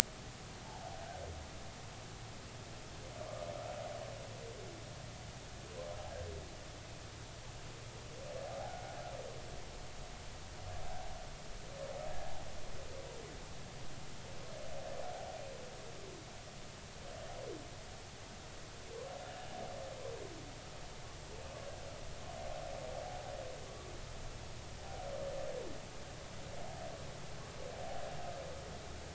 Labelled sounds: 0.6	1.0	humpback whale, 0.80 to 0.96 kHz
8.6	9.0	humpback whale, 0.80 to 1.6 kHz
12.1	12.4	humpback whale, 0.80 to 1.8 kHz

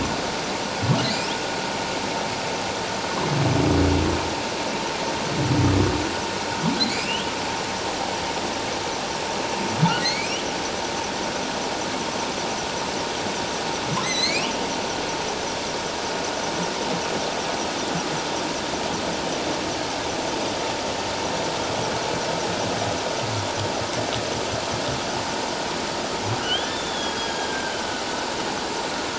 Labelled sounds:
6.9	7.3	humpback whale, 2.2 to 3.4 kHz
10.0	10.4	humpback whale, 1.8 to 5.8 kHz
14.0	14.5	humpback whale, 1.9 to 8.0 kHz
26.4	27.8	humpback whale, 1.3 to 3.8 kHz

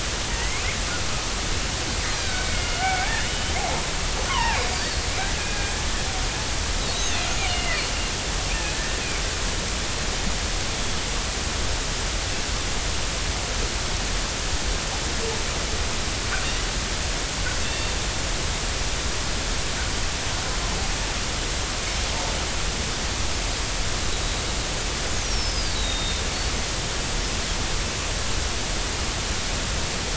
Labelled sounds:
0.3	0.6	killer whale, northern resident, G clan, 1.8 to 2.3 kHz
2.2	3.8	killer whale, northern resident, G clan, 0.80 to 3.1 kHz
4.3	5.1	killer whale, northern resident, G clan, 0.80 to 4.9 kHz
5.4	5.7	killer whale, northern resident, G clan, 1.6 to 1.7 kHz
6.8	7.1	killer whale, northern resident, G clan, 3.7 to 4.0 kHz
7.5	7.8	killer whale, northern resident, G clan, 1.8 to 3.1 kHz
8.7	9.0	killer whale, northern resident, G clan, 1.7 to 1.9 kHz
17.6	19.0	killer whale, northern resident, G clan, 2.6 to 3.6 kHz
25.2	26.2	killer whale, northern resident, G clan, 3.6 to 6.0 kHz

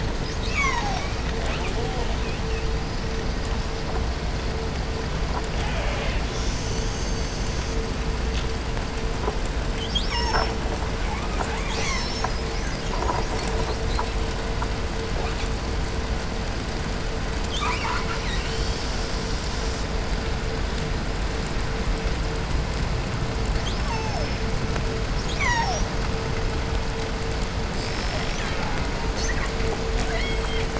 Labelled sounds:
0.1	3.2	killer whale, southern resident, 0.44 to 8.0 kHz
5.3	7.9	killer whale, 0.36 to 8.0 kHz
9.8	10.6	killer whale, southern resident, call S36, 0.50 to 8.0 kHz
10.8	11.6	killer whale, southern resident, J pod, call S44, 0.47 to 3.0 kHz
11.4	14.4	killer whale, southern resident, 0.41 to 8.0 kHz
15.0	15.5	killer whale, 0.43 to 8.0 kHz
17.5	19.9	killer whale, southern resident, call S10, 0.65 to 8.0 kHz
23.4	24.4	killer whale, southern resident, call S36, 0.41 to 8.0 kHz
25.2	26.0	killer whale, southern resident, call S36, 0.48 to 8.0 kHz
27.6	29.3	killer whale, southern resident, call S37ii, 0.43 to 8.0 kHz
29.0	29.6	killer whale, southern resident, 0.30 to 8.0 kHz
30.0	30.7	killer whale, southern resident, J pod, call S44, 0.50 to 7.8 kHz

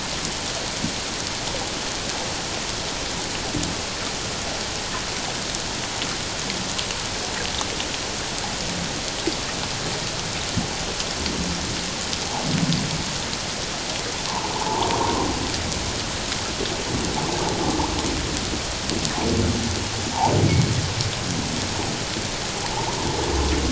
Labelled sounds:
14.5	14.9	humpback whale, 0.78 to 1.2 kHz
22.7	23.0	humpback whale, 0.78 to 1.1 kHz

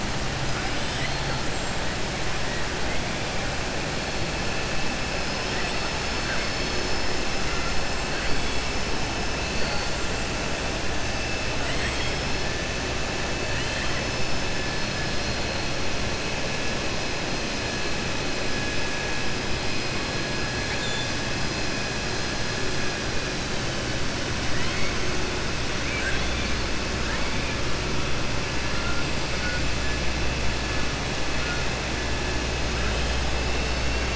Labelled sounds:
0.7	1.3	killer whale, southern resident, 1.9 to 5.6 kHz
11.5	12.2	killer whale, southern resident, 1.2 to 4.2 kHz
20.6	21.1	killer whale, southern resident, 1.8 to 4.2 kHz
24.4	24.9	killer whale, southern resident, 0.99 to 4.5 kHz
25.8	26.6	killer whale, southern resident, 1.5 to 4.5 kHz

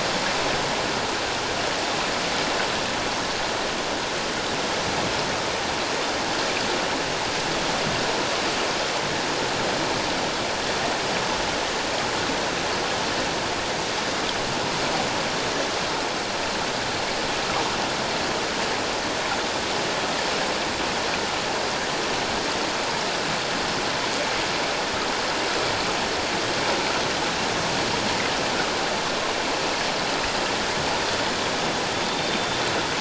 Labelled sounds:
31.9	32.6	killer whale, Bigg's (transient), 3.4 to 3.7 kHz

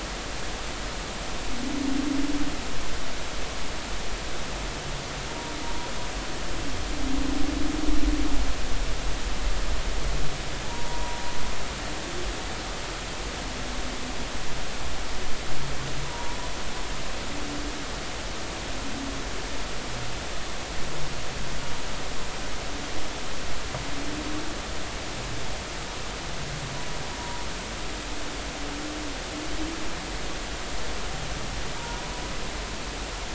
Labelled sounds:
10.6	11.2	humpback whale, 0.83 to 0.99 kHz
16.0	16.4	humpback whale, 0.90 to 1.0 kHz
31.8	32.0	humpback whale, 0.90 to 0.99 kHz

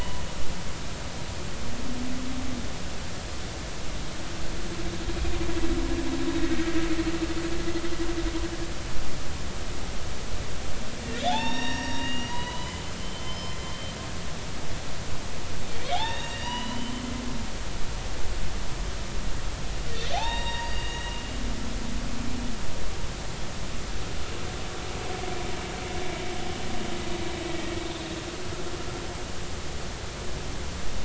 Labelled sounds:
6.4	6.7	humpback whale, 1.86 to 1.92 kHz
11.2	13.9	humpback whale, 0.80 to 7.2 kHz
15.8	17.1	humpback whale, 0.80 to 6.9 kHz
20.1	21.2	humpback whale, 0.80 to 7.6 kHz

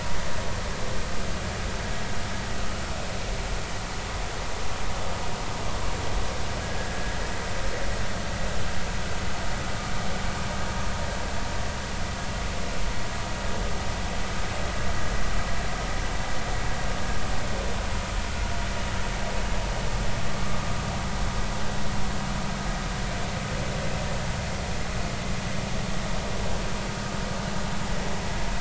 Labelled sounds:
6.6	7.1	vessel noise, 1.6 to 1.8 kHz

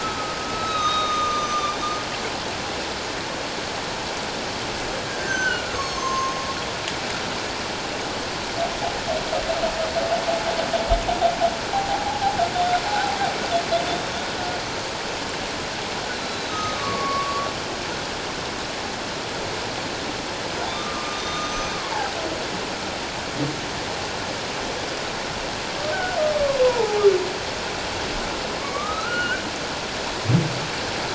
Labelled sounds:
0.0	1.7	humpback whale, 1.1 to 6.5 kHz
5.1	6.4	humpback whale, 0.94 to 6.6 kHz
11.7	13.2	humpback whale, 0.78 to 0.91 kHz
16.1	17.5	humpback whale, 1.0 to 6.4 kHz
20.7	21.8	humpback whale, 1.0 to 6.2 kHz
25.9	26.2	humpback whale, 1.4 to 1.6 kHz
26.6	27.0	humpback whale, 0.78 to 1.1 kHz
28.6	29.4	humpback whale, 1.1 to 4.2 kHz

